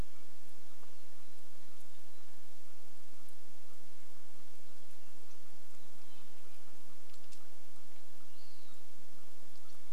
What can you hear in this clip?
chipmunk chirp, Hermit Thrush song, Red-breasted Nuthatch song, Western Wood-Pewee song